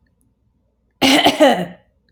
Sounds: Throat clearing